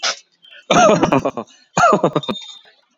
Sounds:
Laughter